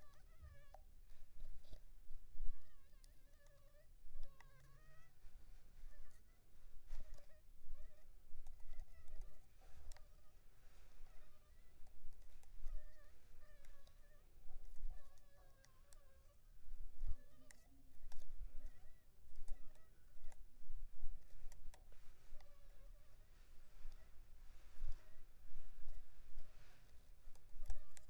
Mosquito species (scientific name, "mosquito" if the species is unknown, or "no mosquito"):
Anopheles funestus s.s.